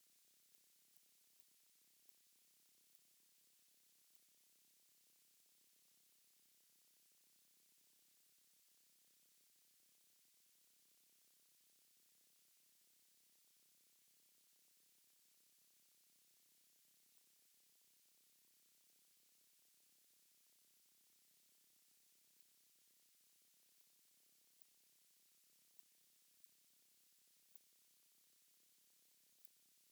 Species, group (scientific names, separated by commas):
Ctenodecticus major, Orthoptera